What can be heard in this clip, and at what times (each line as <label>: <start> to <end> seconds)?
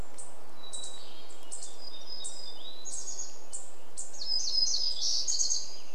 Hermit Thrush song: 0 to 4 seconds
unidentified bird chip note: 0 to 6 seconds
warbler song: 0 to 6 seconds
Common Raven call: 4 to 6 seconds